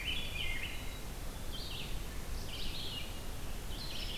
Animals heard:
Red-eyed Vireo (Vireo olivaceus), Rose-breasted Grosbeak (Pheucticus ludovicianus)

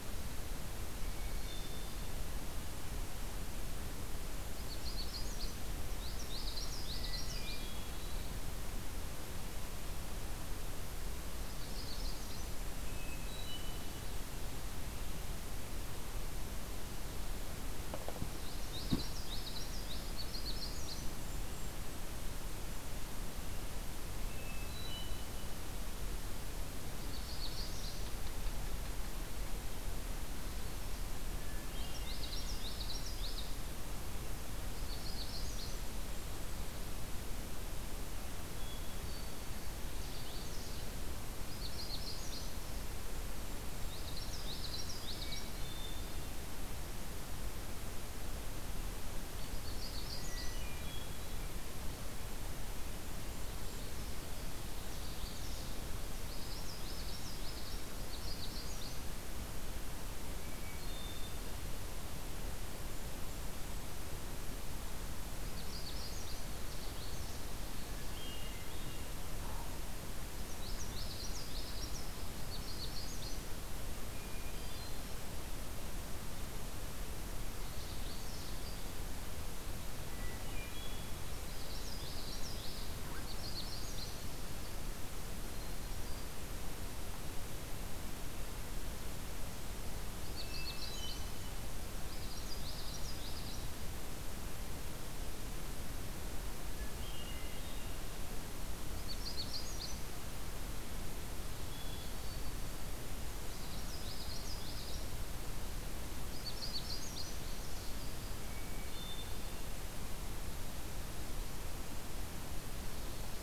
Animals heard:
Common Yellowthroat (Geothlypis trichas), Golden-crowned Kinglet (Regulus satrapa), Magnolia Warbler (Setophaga magnolia), Hermit Thrush (Catharus guttatus), Canada Warbler (Cardellina canadensis)

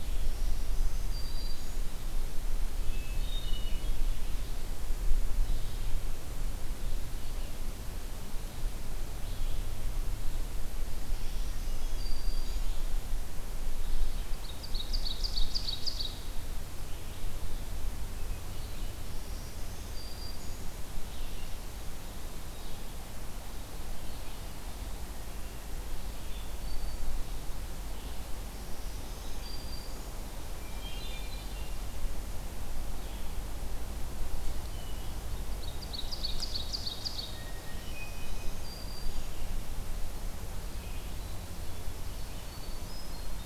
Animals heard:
Hermit Thrush (Catharus guttatus), Red-eyed Vireo (Vireo olivaceus), Black-throated Green Warbler (Setophaga virens), Ovenbird (Seiurus aurocapilla)

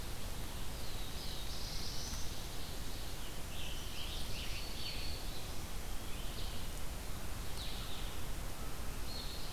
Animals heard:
Black-throated Green Warbler (Setophaga virens), Scarlet Tanager (Piranga olivacea), Black-throated Blue Warbler (Setophaga caerulescens), Red-eyed Vireo (Vireo olivaceus)

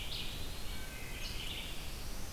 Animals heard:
Red-eyed Vireo (Vireo olivaceus), Wood Thrush (Hylocichla mustelina), Eastern Wood-Pewee (Contopus virens)

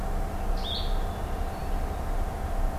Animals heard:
Blue-headed Vireo (Vireo solitarius)

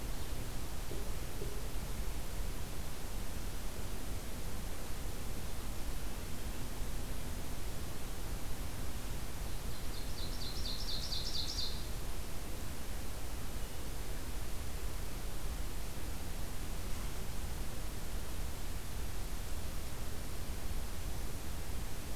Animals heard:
Ovenbird (Seiurus aurocapilla)

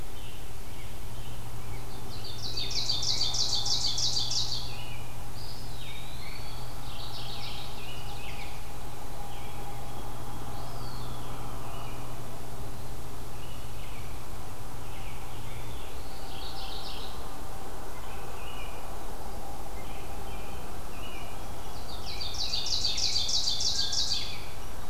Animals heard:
Eastern Wood-Pewee (Contopus virens), American Robin (Turdus migratorius), Rose-breasted Grosbeak (Pheucticus ludovicianus), Ovenbird (Seiurus aurocapilla), Black-throated Blue Warbler (Setophaga caerulescens), White-throated Sparrow (Zonotrichia albicollis), Mourning Warbler (Geothlypis philadelphia)

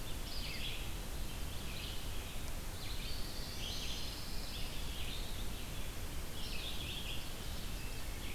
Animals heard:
Pine Warbler (Setophaga pinus), Ovenbird (Seiurus aurocapilla), Black-throated Blue Warbler (Setophaga caerulescens), Red-eyed Vireo (Vireo olivaceus)

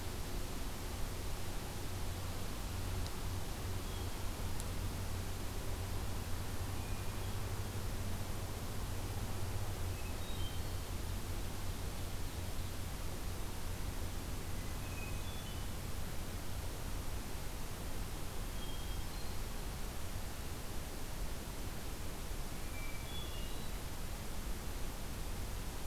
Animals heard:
Hermit Thrush (Catharus guttatus)

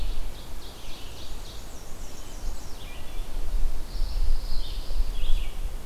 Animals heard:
Pine Warbler (Setophaga pinus), Black-and-white Warbler (Mniotilta varia), Ovenbird (Seiurus aurocapilla), Red-eyed Vireo (Vireo olivaceus)

